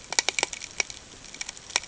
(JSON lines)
{"label": "ambient", "recorder": "HydroMoth"}